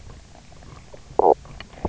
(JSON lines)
{"label": "biophony, knock croak", "recorder": "SoundTrap 300"}